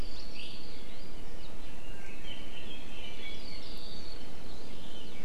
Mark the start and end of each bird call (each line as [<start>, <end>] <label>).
[0.00, 0.80] Hawaii Creeper (Loxops mana)
[1.80, 3.70] Red-billed Leiothrix (Leiothrix lutea)
[3.30, 4.30] Hawaii Creeper (Loxops mana)